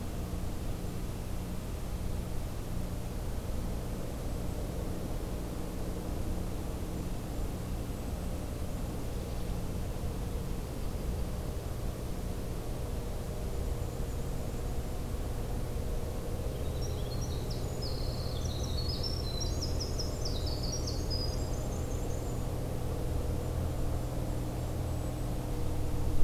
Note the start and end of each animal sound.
[6.70, 9.45] Golden-crowned Kinglet (Regulus satrapa)
[13.38, 14.93] Black-and-white Warbler (Mniotilta varia)
[16.39, 22.51] Winter Wren (Troglodytes hiemalis)
[17.30, 19.63] Golden-crowned Kinglet (Regulus satrapa)
[22.98, 25.61] Golden-crowned Kinglet (Regulus satrapa)

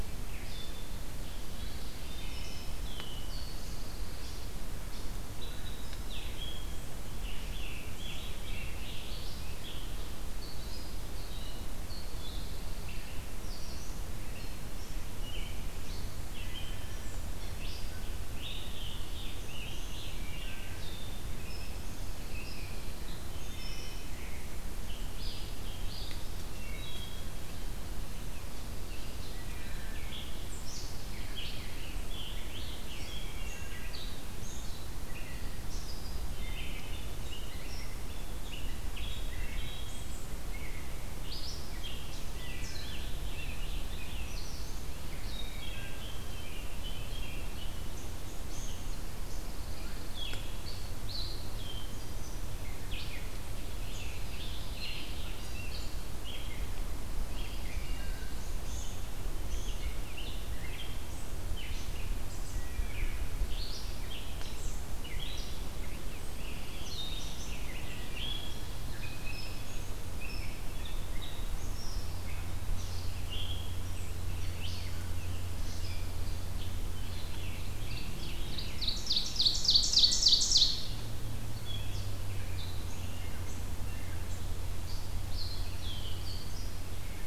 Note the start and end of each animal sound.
[0.00, 87.26] Red-eyed Vireo (Vireo olivaceus)
[1.82, 3.27] Wood Thrush (Hylocichla mustelina)
[3.14, 4.73] Pine Warbler (Setophaga pinus)
[7.13, 8.81] Scarlet Tanager (Piranga olivacea)
[11.68, 13.09] Pine Warbler (Setophaga pinus)
[17.59, 20.83] Scarlet Tanager (Piranga olivacea)
[21.93, 23.24] Pine Warbler (Setophaga pinus)
[23.19, 24.46] Wood Thrush (Hylocichla mustelina)
[26.44, 27.41] Wood Thrush (Hylocichla mustelina)
[31.10, 33.82] Scarlet Tanager (Piranga olivacea)
[38.72, 40.29] Wood Thrush (Hylocichla mustelina)
[41.10, 44.30] Scarlet Tanager (Piranga olivacea)
[45.17, 47.43] Wood Thrush (Hylocichla mustelina)
[49.00, 50.53] Pine Warbler (Setophaga pinus)
[52.71, 55.95] Scarlet Tanager (Piranga olivacea)
[57.25, 58.33] Wood Thrush (Hylocichla mustelina)
[63.81, 68.27] Scarlet Tanager (Piranga olivacea)
[66.05, 67.69] Pine Warbler (Setophaga pinus)
[76.47, 79.45] Scarlet Tanager (Piranga olivacea)
[77.77, 81.16] Ovenbird (Seiurus aurocapilla)
[85.11, 86.59] Pine Warbler (Setophaga pinus)

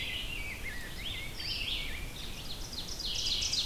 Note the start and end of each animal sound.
[0.00, 2.12] Rose-breasted Grosbeak (Pheucticus ludovicianus)
[0.00, 3.65] Red-eyed Vireo (Vireo olivaceus)
[2.09, 3.65] Ovenbird (Seiurus aurocapilla)

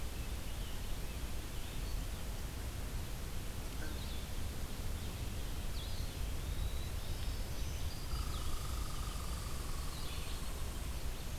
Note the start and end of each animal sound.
[0.00, 11.38] Blue-headed Vireo (Vireo solitarius)
[0.03, 1.33] Rose-breasted Grosbeak (Pheucticus ludovicianus)
[5.57, 7.04] Eastern Wood-Pewee (Contopus virens)
[6.91, 8.31] Black-throated Green Warbler (Setophaga virens)
[8.01, 10.74] Red Squirrel (Tamiasciurus hudsonicus)

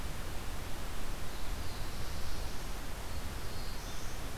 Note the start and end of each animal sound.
[1.22, 4.24] Black-throated Blue Warbler (Setophaga caerulescens)

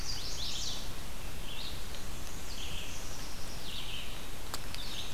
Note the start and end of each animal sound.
[0.00, 0.87] Chestnut-sided Warbler (Setophaga pensylvanica)
[0.00, 5.14] Red-eyed Vireo (Vireo olivaceus)
[1.40, 3.06] Black-and-white Warbler (Mniotilta varia)
[2.81, 4.40] Black-capped Chickadee (Poecile atricapillus)

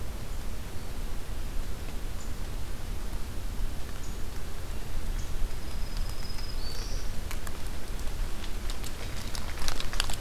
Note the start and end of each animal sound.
[5.37, 7.17] Black-throated Green Warbler (Setophaga virens)

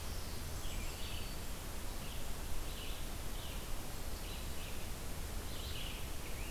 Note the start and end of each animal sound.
[0.00, 1.53] Black-throated Green Warbler (Setophaga virens)
[0.50, 6.50] Red-eyed Vireo (Vireo olivaceus)

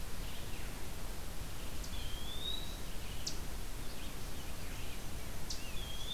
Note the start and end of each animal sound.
[0.00, 6.13] Red-eyed Vireo (Vireo olivaceus)
[1.88, 2.98] Eastern Wood-Pewee (Contopus virens)
[3.21, 3.44] Eastern Chipmunk (Tamias striatus)
[5.38, 5.59] Eastern Chipmunk (Tamias striatus)

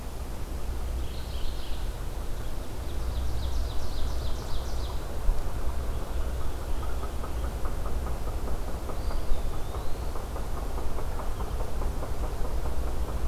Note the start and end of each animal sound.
[0.90, 1.97] Mourning Warbler (Geothlypis philadelphia)
[2.40, 5.14] Ovenbird (Seiurus aurocapilla)
[8.82, 10.34] Eastern Wood-Pewee (Contopus virens)

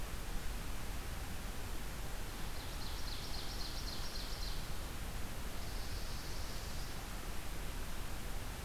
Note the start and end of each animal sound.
[2.04, 4.86] Ovenbird (Seiurus aurocapilla)
[5.47, 7.09] Swamp Sparrow (Melospiza georgiana)

